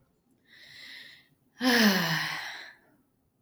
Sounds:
Sigh